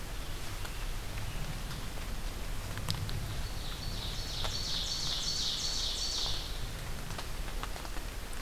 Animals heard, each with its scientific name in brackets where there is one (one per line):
Ovenbird (Seiurus aurocapilla)
Scarlet Tanager (Piranga olivacea)